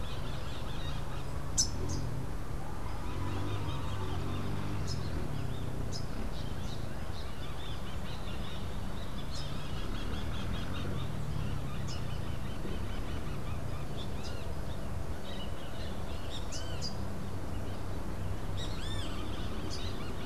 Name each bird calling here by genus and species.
Psittacara finschi, Pitangus sulphuratus